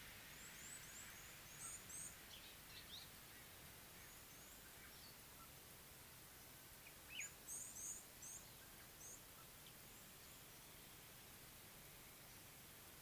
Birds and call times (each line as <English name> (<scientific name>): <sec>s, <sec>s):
African Black-headed Oriole (Oriolus larvatus): 7.1s
Red-cheeked Cordonbleu (Uraeginthus bengalus): 7.5s